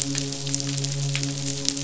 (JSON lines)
{"label": "biophony, midshipman", "recorder": "SoundTrap 500"}